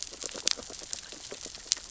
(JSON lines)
{"label": "biophony, sea urchins (Echinidae)", "recorder": "SoundTrap 600 or HydroMoth"}